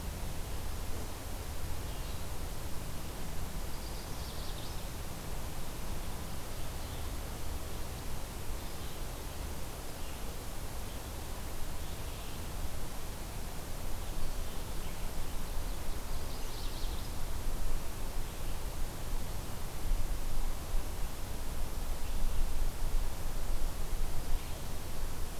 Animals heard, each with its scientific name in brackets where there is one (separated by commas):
Red-eyed Vireo (Vireo olivaceus), Magnolia Warbler (Setophaga magnolia)